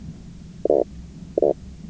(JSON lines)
{"label": "biophony, knock croak", "recorder": "SoundTrap 300"}